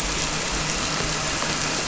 {"label": "anthrophony, boat engine", "recorder": "SoundTrap 300"}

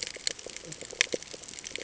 {"label": "ambient", "recorder": "HydroMoth"}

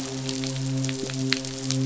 {"label": "biophony, midshipman", "recorder": "SoundTrap 500"}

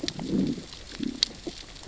{"label": "biophony, growl", "recorder": "SoundTrap 600 or HydroMoth"}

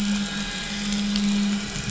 {"label": "anthrophony, boat engine", "recorder": "SoundTrap 500"}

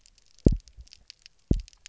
{"label": "biophony, double pulse", "recorder": "SoundTrap 300"}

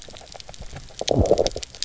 {"label": "biophony, low growl", "recorder": "SoundTrap 300"}
{"label": "biophony, grazing", "recorder": "SoundTrap 300"}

